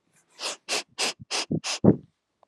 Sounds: Sniff